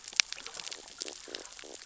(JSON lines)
{"label": "biophony, stridulation", "recorder": "SoundTrap 600 or HydroMoth"}